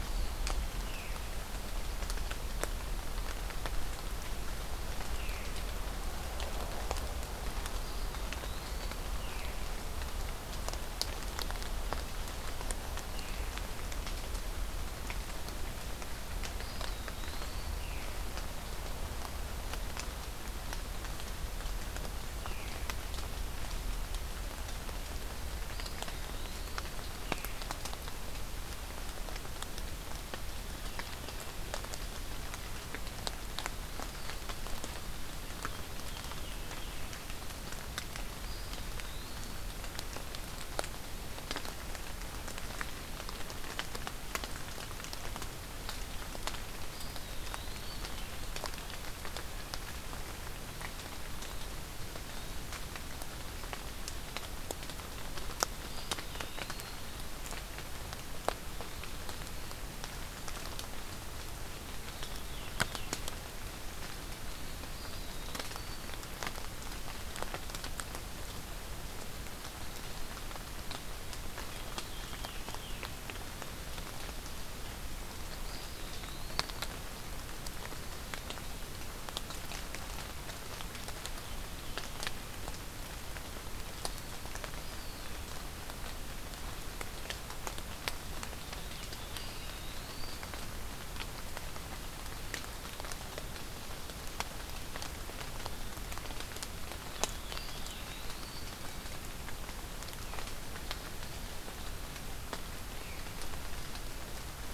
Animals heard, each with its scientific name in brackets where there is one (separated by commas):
Eastern Wood-Pewee (Contopus virens), Veery (Catharus fuscescens)